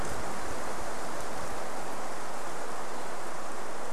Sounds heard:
forest ambience